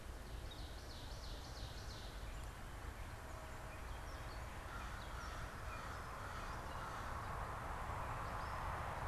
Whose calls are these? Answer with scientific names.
Seiurus aurocapilla, Corvus brachyrhynchos